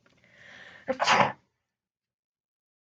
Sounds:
Sneeze